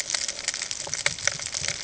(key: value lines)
label: ambient
recorder: HydroMoth